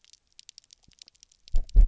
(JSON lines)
{"label": "biophony, double pulse", "recorder": "SoundTrap 300"}